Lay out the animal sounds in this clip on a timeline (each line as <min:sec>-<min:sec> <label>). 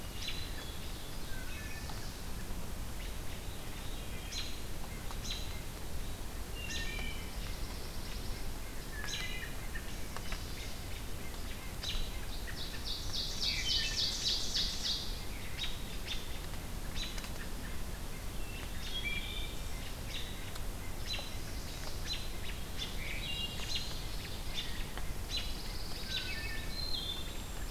0:00.1-0:00.8 Hermit Thrush (Catharus guttatus)
0:00.1-0:00.4 American Robin (Turdus migratorius)
0:01.3-0:02.1 Hermit Thrush (Catharus guttatus)
0:02.9-0:04.5 Veery (Catharus fuscescens)
0:04.3-0:04.5 American Robin (Turdus migratorius)
0:05.2-0:05.5 American Robin (Turdus migratorius)
0:06.4-0:07.3 Wood Thrush (Hylocichla mustelina)
0:06.6-0:08.5 Pine Warbler (Setophaga pinus)
0:08.8-0:09.5 Wood Thrush (Hylocichla mustelina)
0:10.5-0:12.1 American Robin (Turdus migratorius)
0:12.4-0:15.3 Ovenbird (Seiurus aurocapilla)
0:15.5-0:17.2 American Robin (Turdus migratorius)
0:18.7-0:19.7 Wood Thrush (Hylocichla mustelina)
0:20.0-0:20.3 American Robin (Turdus migratorius)
0:21.0-0:21.3 American Robin (Turdus migratorius)
0:21.2-0:21.9 Chestnut-sided Warbler (Setophaga pensylvanica)
0:22.0-0:22.3 American Robin (Turdus migratorius)
0:22.8-0:23.0 American Robin (Turdus migratorius)
0:22.8-0:24.7 Ovenbird (Seiurus aurocapilla)
0:23.0-0:23.6 Wood Thrush (Hylocichla mustelina)
0:23.7-0:23.9 American Robin (Turdus migratorius)
0:24.5-0:24.7 American Robin (Turdus migratorius)
0:25.3-0:26.6 Pine Warbler (Setophaga pinus)
0:25.3-0:25.5 American Robin (Turdus migratorius)
0:26.1-0:26.3 American Robin (Turdus migratorius)
0:26.2-0:27.4 Wood Thrush (Hylocichla mustelina)
0:27.0-0:27.7 Cedar Waxwing (Bombycilla cedrorum)